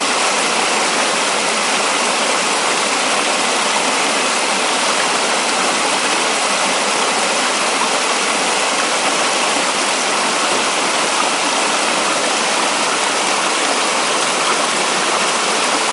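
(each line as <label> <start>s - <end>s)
Loud flowing water. 0.0s - 15.9s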